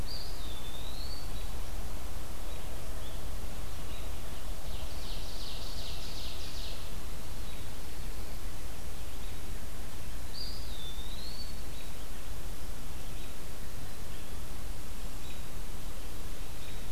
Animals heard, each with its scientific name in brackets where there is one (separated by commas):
Eastern Wood-Pewee (Contopus virens), American Robin (Turdus migratorius), Ovenbird (Seiurus aurocapilla)